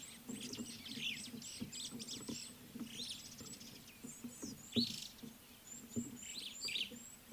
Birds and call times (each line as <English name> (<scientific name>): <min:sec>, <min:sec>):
Superb Starling (Lamprotornis superbus): 0:04.9
Red-cheeked Cordonbleu (Uraeginthus bengalus): 0:06.2